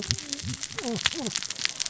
{"label": "biophony, cascading saw", "recorder": "SoundTrap 600 or HydroMoth"}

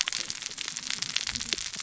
{"label": "biophony, cascading saw", "recorder": "SoundTrap 600 or HydroMoth"}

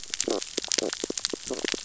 {"label": "biophony, stridulation", "recorder": "SoundTrap 600 or HydroMoth"}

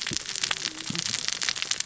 {"label": "biophony, cascading saw", "recorder": "SoundTrap 600 or HydroMoth"}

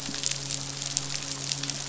{"label": "biophony, midshipman", "recorder": "SoundTrap 500"}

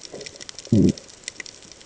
{"label": "ambient", "recorder": "HydroMoth"}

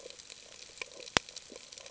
{"label": "ambient", "recorder": "HydroMoth"}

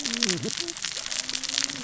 {"label": "biophony, cascading saw", "recorder": "SoundTrap 600 or HydroMoth"}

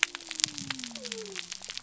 {"label": "biophony", "recorder": "SoundTrap 300"}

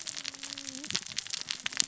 {"label": "biophony, cascading saw", "recorder": "SoundTrap 600 or HydroMoth"}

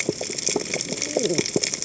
{"label": "biophony, cascading saw", "recorder": "HydroMoth"}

